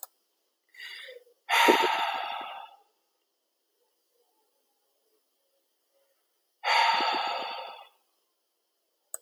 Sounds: Sigh